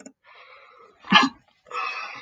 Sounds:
Sneeze